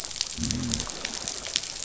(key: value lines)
label: biophony
recorder: SoundTrap 500